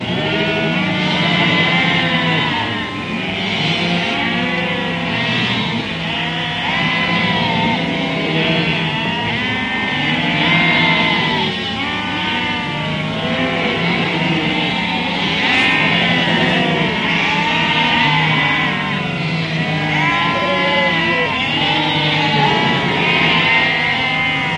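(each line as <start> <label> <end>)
0.0 A flock of sheep bleats loudly. 24.6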